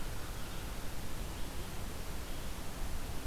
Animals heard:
forest ambience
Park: Marsh-Billings-Rockefeller National Historical Park